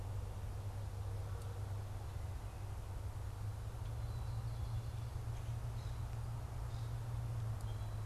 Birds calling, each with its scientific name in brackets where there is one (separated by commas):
Common Grackle (Quiscalus quiscula)